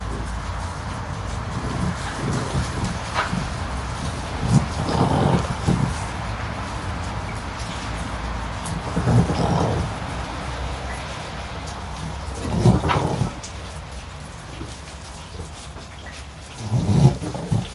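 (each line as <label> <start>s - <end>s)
Rain falling inside a stable. 0.0s - 17.7s
Two rams making intermittent deep vocalizations to each other. 1.6s - 6.5s
Two rams making deep vocalizations. 8.6s - 10.7s
Two rams making deep vocalizations. 12.0s - 14.1s
Two rams making deep vocalizations. 16.4s - 17.7s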